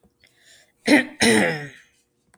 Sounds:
Throat clearing